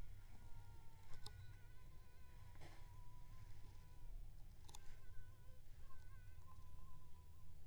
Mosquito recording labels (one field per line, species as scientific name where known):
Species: Aedes aegypti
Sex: female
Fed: unfed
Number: one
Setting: cup